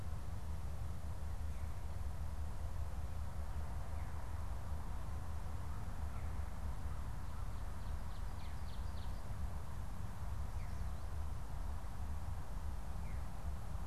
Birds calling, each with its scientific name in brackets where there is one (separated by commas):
Ovenbird (Seiurus aurocapilla), Veery (Catharus fuscescens)